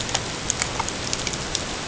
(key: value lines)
label: ambient
recorder: HydroMoth